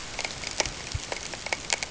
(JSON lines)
{"label": "ambient", "recorder": "HydroMoth"}